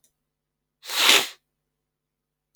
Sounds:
Sniff